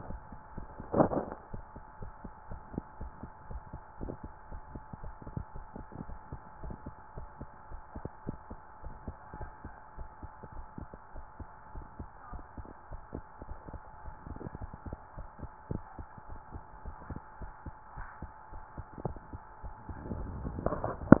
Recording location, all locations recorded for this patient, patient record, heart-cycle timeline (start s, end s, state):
tricuspid valve (TV)
aortic valve (AV)+pulmonary valve (PV)+tricuspid valve (TV)+mitral valve (MV)
#Age: nan
#Sex: Female
#Height: nan
#Weight: nan
#Pregnancy status: True
#Murmur: Absent
#Murmur locations: nan
#Most audible location: nan
#Systolic murmur timing: nan
#Systolic murmur shape: nan
#Systolic murmur grading: nan
#Systolic murmur pitch: nan
#Systolic murmur quality: nan
#Diastolic murmur timing: nan
#Diastolic murmur shape: nan
#Diastolic murmur grading: nan
#Diastolic murmur pitch: nan
#Diastolic murmur quality: nan
#Outcome: Abnormal
#Campaign: 2015 screening campaign
0.00	1.52	unannotated
1.52	1.64	S1
1.64	1.74	systole
1.74	1.82	S2
1.82	2.00	diastole
2.00	2.14	S1
2.14	2.24	systole
2.24	2.32	S2
2.32	2.50	diastole
2.50	2.62	S1
2.62	2.72	systole
2.72	2.82	S2
2.82	3.00	diastole
3.00	3.12	S1
3.12	3.20	systole
3.20	3.30	S2
3.30	3.50	diastole
3.50	3.62	S1
3.62	3.72	systole
3.72	3.80	S2
3.80	4.00	diastole
4.00	4.15	S1
4.15	4.22	systole
4.22	4.32	S2
4.32	4.50	diastole
4.50	4.62	S1
4.62	4.70	systole
4.70	4.82	S2
4.82	5.02	diastole
5.02	5.16	S1
5.16	5.26	systole
5.26	5.34	S2
5.34	5.54	diastole
5.54	5.66	S1
5.66	5.76	systole
5.76	5.86	S2
5.86	6.08	diastole
6.08	6.20	S1
6.20	6.30	systole
6.30	6.40	S2
6.40	6.62	diastole
6.62	6.78	S1
6.78	6.84	systole
6.84	6.94	S2
6.94	7.16	diastole
7.16	7.30	S1
7.30	7.38	systole
7.38	7.48	S2
7.48	7.72	diastole
7.72	7.84	S1
7.84	7.94	systole
7.94	8.04	S2
8.04	8.28	diastole
8.28	8.40	S1
8.40	8.50	systole
8.50	8.58	S2
8.58	8.84	diastole
8.84	8.96	S1
8.96	9.06	systole
9.06	9.16	S2
9.16	9.42	diastole
9.42	9.54	S1
9.54	9.64	systole
9.64	9.74	S2
9.74	9.98	diastole
9.98	10.12	S1
10.12	10.22	systole
10.22	10.30	S2
10.30	10.52	diastole
10.52	10.66	S1
10.66	10.78	systole
10.78	10.88	S2
10.88	11.14	diastole
11.14	11.26	S1
11.26	11.38	systole
11.38	11.48	S2
11.48	11.74	diastole
11.74	11.88	S1
11.88	11.98	systole
11.98	12.08	S2
12.08	12.32	diastole
12.32	12.46	S1
12.46	12.56	systole
12.56	12.66	S2
12.66	12.90	diastole
12.90	13.00	S1
13.00	13.14	systole
13.14	13.22	S2
13.22	13.46	diastole
13.46	13.58	S1
13.58	13.68	systole
13.68	13.82	S2
13.82	14.04	diastole
14.04	14.14	S1
14.14	14.26	systole
14.26	14.40	S2
14.40	14.62	diastole
14.62	14.74	S1
14.74	14.84	systole
14.84	14.98	S2
14.98	15.18	diastole
15.18	15.30	S1
15.30	15.42	systole
15.42	15.50	S2
15.50	15.70	diastole
15.70	15.84	S1
15.84	15.98	systole
15.98	16.06	S2
16.06	16.30	diastole
16.30	16.40	S1
16.40	16.52	systole
16.52	16.62	S2
16.62	16.84	diastole
16.84	16.96	S1
16.96	17.08	systole
17.08	17.22	S2
17.22	17.42	diastole
17.42	17.52	S1
17.52	17.64	systole
17.64	17.72	S2
17.72	17.96	diastole
17.96	18.08	S1
18.08	18.20	systole
18.20	18.30	S2
18.30	18.52	diastole
18.52	18.62	S1
18.62	18.76	systole
18.76	18.86	S2
18.86	19.06	diastole
19.06	19.22	S1
19.22	19.32	systole
19.32	19.42	S2
19.42	19.64	diastole
19.64	19.76	S1
19.76	19.88	systole
19.88	19.98	S2
19.98	20.18	diastole
20.18	20.30	S1
20.30	20.44	systole
20.44	20.55	S2
20.55	21.20	unannotated